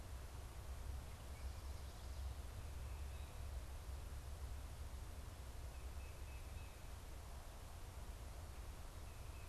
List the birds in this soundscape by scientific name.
Baeolophus bicolor